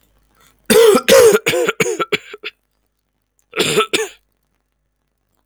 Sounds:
Cough